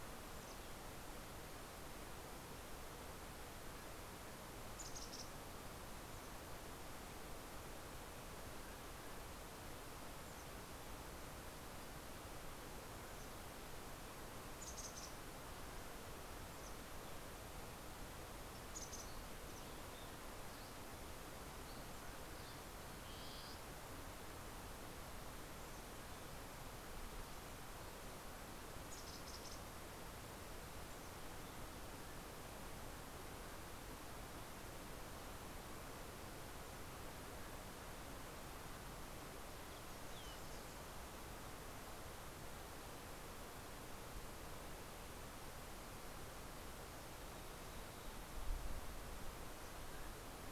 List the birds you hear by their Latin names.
Poecile gambeli, Vireo gilvus, Oreortyx pictus